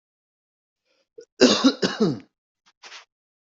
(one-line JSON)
{"expert_labels": [{"quality": "good", "cough_type": "dry", "dyspnea": false, "wheezing": false, "stridor": false, "choking": false, "congestion": false, "nothing": true, "diagnosis": "healthy cough", "severity": "pseudocough/healthy cough"}], "age": 39, "gender": "male", "respiratory_condition": false, "fever_muscle_pain": false, "status": "healthy"}